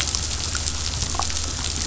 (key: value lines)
label: anthrophony, boat engine
recorder: SoundTrap 500